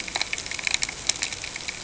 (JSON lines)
{"label": "ambient", "recorder": "HydroMoth"}